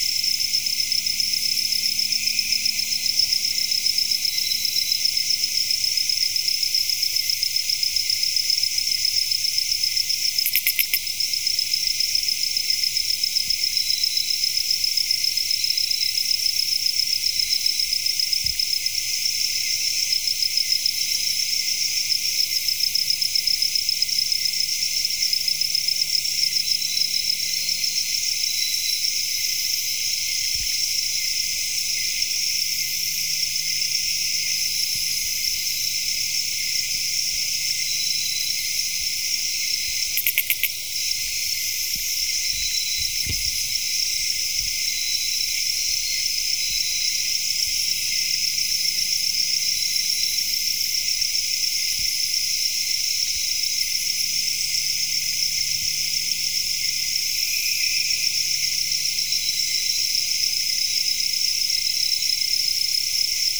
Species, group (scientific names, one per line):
Ducetia japonica
Orthoptera